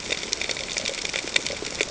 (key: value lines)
label: ambient
recorder: HydroMoth